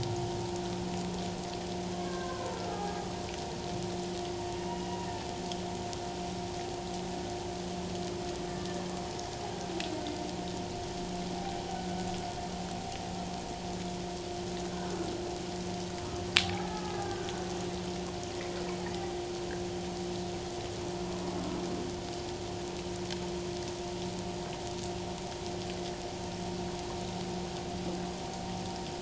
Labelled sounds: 1.9	3.0	humpback whale, 0.78 to 1.7 kHz
4.7	5.1	humpback whale, 2.7 to 2.9 kHz
16.4	17.3	humpback whale, 0.78 to 1.8 kHz

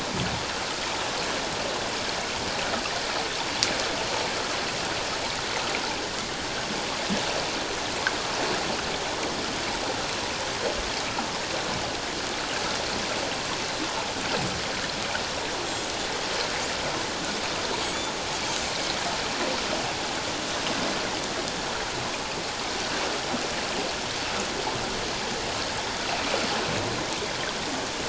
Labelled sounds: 15.7	15.9	Pacific white-sided dolphin, 7.3 to 7.8 kHz

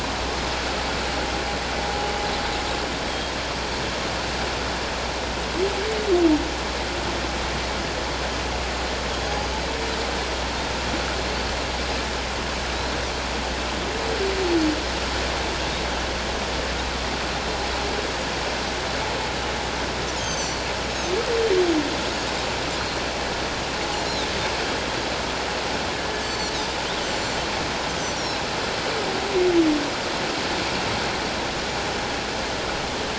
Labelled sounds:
9.2	9.5	Pacific white-sided dolphin, 4.7 to 4.9 kHz
20.2	20.7	Pacific white-sided dolphin, 4.3 to 7.9 kHz
26.2	28.5	Pacific white-sided dolphin, 3.6 to 7.7 kHz

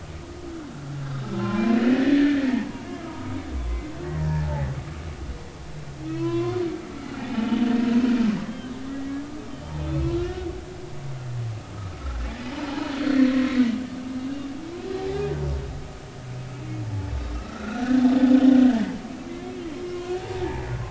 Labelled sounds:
1.2	3.4	humpback whale, 0.83 to 2.0 kHz
4.0	4.7	humpback whale, 0.80 to 2.0 kHz
6.1	8.7	humpback whale, 0.96 to 3.2 kHz
9.9	10.5	humpback whale, 1.3 to 4.4 kHz
12.5	13.7	humpback whale, 0.80 to 4.5 kHz
14.9	15.2	humpback whale, 0.80 to 0.90 kHz
16.8	18.0	humpback whale, 0.80 to 1.8 kHz
19.2	20.6	humpback whale, 0.80 to 2.2 kHz

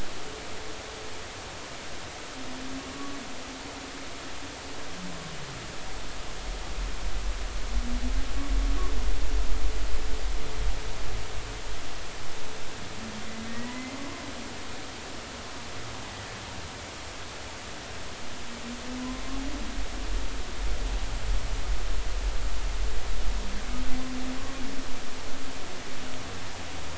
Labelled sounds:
3.9	4.2	humpback whale, 1.1 to 1.2 kHz
13.5	13.9	humpback whale, 1.8 to 2.1 kHz

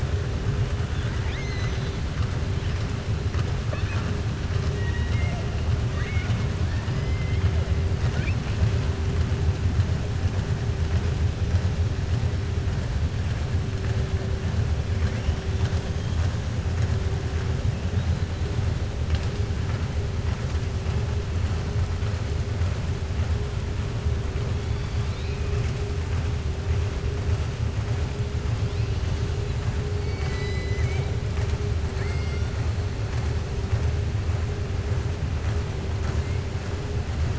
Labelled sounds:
0.9	2.0	killer whale, southern resident, 1.4 to 6.5 kHz
3.6	4.1	killer whale, southern resident, 0.55 to 4.4 kHz
4.7	5.4	killer whale, southern resident, 0.66 to 3.8 kHz
5.8	6.4	killer whale, southern resident, 0.75 to 3.7 kHz
6.9	7.4	killer whale, southern resident, 2.0 to 3.2 kHz
30.0	31.1	killer whale, southern resident, 0.85 to 7.9 kHz
31.9	32.5	killer whale, southern resident, 1.4 to 2.9 kHz

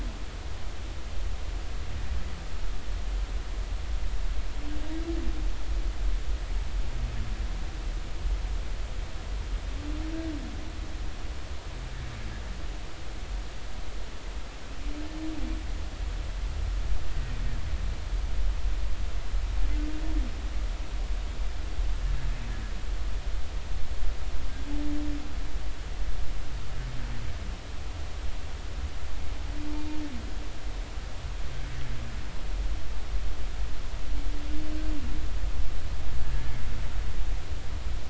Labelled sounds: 36.2	36.5	humpback whale, 1.6 to 1.8 kHz

